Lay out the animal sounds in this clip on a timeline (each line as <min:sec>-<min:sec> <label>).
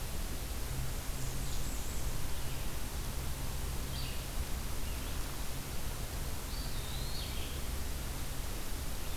0:00.0-0:09.2 Red-eyed Vireo (Vireo olivaceus)
0:00.7-0:02.3 Blackburnian Warbler (Setophaga fusca)
0:06.1-0:07.7 Eastern Wood-Pewee (Contopus virens)